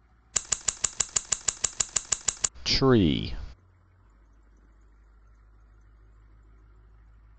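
First, the sound of scissors can be heard. After that, a voice says "tree."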